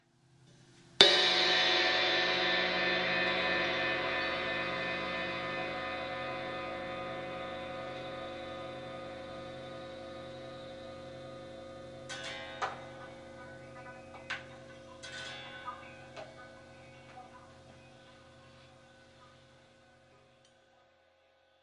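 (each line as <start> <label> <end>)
1.0 An echoing metallic gong sound fading away. 12.1
12.1 A guitar string sound fading gradually. 14.3
12.8 A metallic sound of a guitar string fading away. 20.2
14.3 A quiet tapping sound on the strings of a guitar. 14.4
14.9 A short guitar note. 15.8
16.1 A quiet sound of a guitar string being plucked. 16.3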